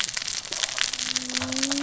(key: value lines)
label: biophony, cascading saw
recorder: SoundTrap 600 or HydroMoth